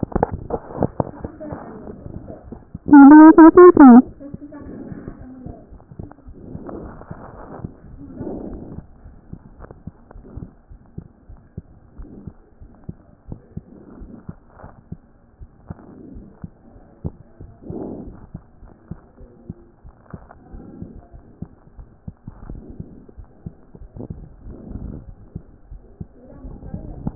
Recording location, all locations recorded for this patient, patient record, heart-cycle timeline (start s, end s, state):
aortic valve (AV)
aortic valve (AV)+pulmonary valve (PV)+tricuspid valve (TV)
#Age: Child
#Sex: Female
#Height: 110.0 cm
#Weight: 19.9 kg
#Pregnancy status: False
#Murmur: Absent
#Murmur locations: nan
#Most audible location: nan
#Systolic murmur timing: nan
#Systolic murmur shape: nan
#Systolic murmur grading: nan
#Systolic murmur pitch: nan
#Systolic murmur quality: nan
#Diastolic murmur timing: nan
#Diastolic murmur shape: nan
#Diastolic murmur grading: nan
#Diastolic murmur pitch: nan
#Diastolic murmur quality: nan
#Outcome: Normal
#Campaign: 2014 screening campaign
0.00	9.54	unannotated
9.54	9.60	diastole
9.60	9.70	S1
9.70	9.86	systole
9.86	9.92	S2
9.92	10.16	diastole
10.16	10.24	S1
10.24	10.36	systole
10.36	10.48	S2
10.48	10.72	diastole
10.72	10.78	S1
10.78	10.96	systole
10.96	11.06	S2
11.06	11.30	diastole
11.30	11.40	S1
11.40	11.56	systole
11.56	11.64	S2
11.64	11.98	diastole
11.98	12.10	S1
12.10	12.24	systole
12.24	12.34	S2
12.34	12.62	diastole
12.62	12.70	S1
12.70	12.86	systole
12.86	12.96	S2
12.96	13.28	diastole
13.28	13.40	S1
13.40	13.56	systole
13.56	13.64	S2
13.64	13.98	diastole
13.98	14.10	S1
14.10	14.28	systole
14.28	14.36	S2
14.36	14.64	diastole
14.64	14.72	S1
14.72	14.90	systole
14.90	15.00	S2
15.00	15.40	diastole
15.40	15.50	S1
15.50	15.68	systole
15.68	15.76	S2
15.76	16.12	diastole
16.12	16.24	S1
16.24	16.42	systole
16.42	16.52	S2
16.52	16.71	diastole
16.71	27.15	unannotated